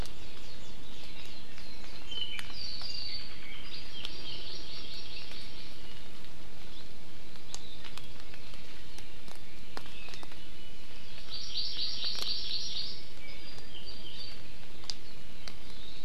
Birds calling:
Hawaii Amakihi (Chlorodrepanis virens), Apapane (Himatione sanguinea)

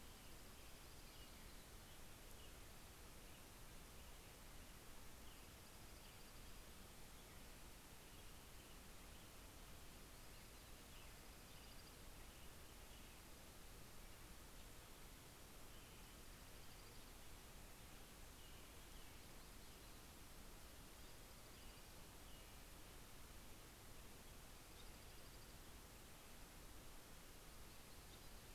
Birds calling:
Dark-eyed Junco (Junco hyemalis), Yellow-rumped Warbler (Setophaga coronata), American Robin (Turdus migratorius)

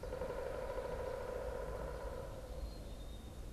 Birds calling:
Pileated Woodpecker (Dryocopus pileatus)

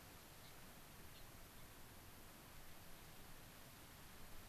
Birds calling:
Gray-crowned Rosy-Finch (Leucosticte tephrocotis)

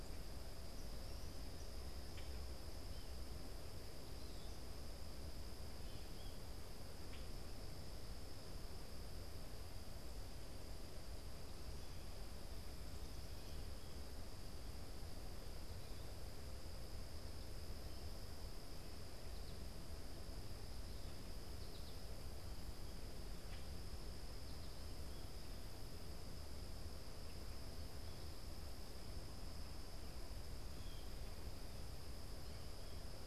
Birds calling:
Blue Jay (Cyanocitta cristata), Common Grackle (Quiscalus quiscula), American Goldfinch (Spinus tristis)

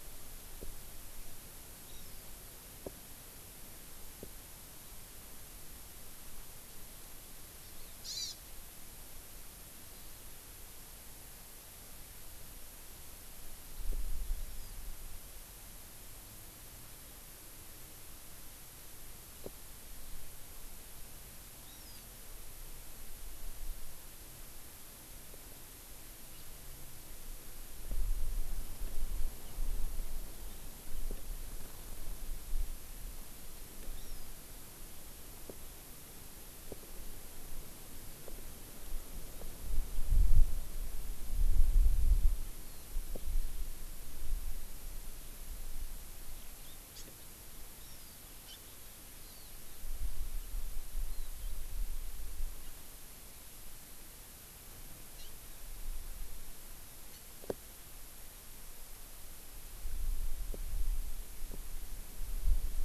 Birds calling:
House Finch (Haemorhous mexicanus), Hawaii Amakihi (Chlorodrepanis virens)

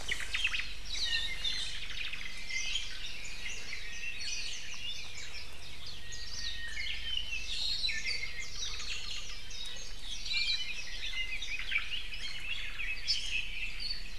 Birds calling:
Warbling White-eye (Zosterops japonicus), Japanese Bush Warbler (Horornis diphone), Omao (Myadestes obscurus), Hawaii Akepa (Loxops coccineus), Iiwi (Drepanis coccinea)

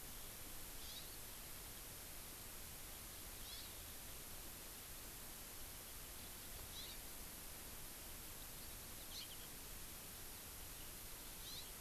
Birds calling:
Hawaii Amakihi (Chlorodrepanis virens), House Finch (Haemorhous mexicanus)

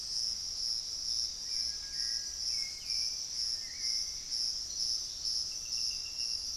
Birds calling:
Hauxwell's Thrush (Turdus hauxwelli), Gray Antbird (Cercomacra cinerascens)

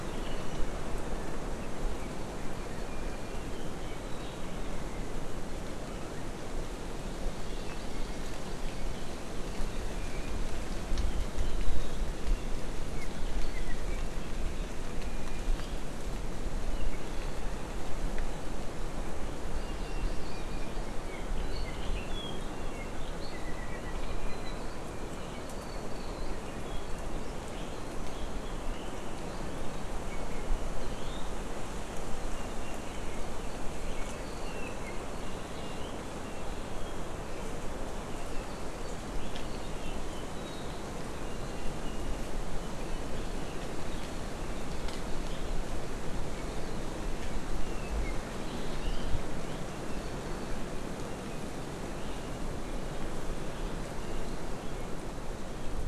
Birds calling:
Iiwi (Drepanis coccinea), Hawaii Amakihi (Chlorodrepanis virens), Apapane (Himatione sanguinea)

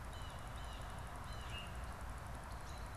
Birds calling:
Blue Jay (Cyanocitta cristata)

